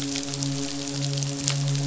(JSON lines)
{"label": "biophony, midshipman", "recorder": "SoundTrap 500"}